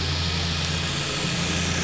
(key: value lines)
label: anthrophony, boat engine
recorder: SoundTrap 500